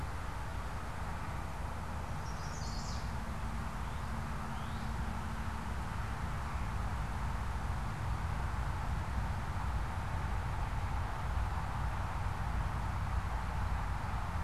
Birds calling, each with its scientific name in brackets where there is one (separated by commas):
Chestnut-sided Warbler (Setophaga pensylvanica), Northern Cardinal (Cardinalis cardinalis)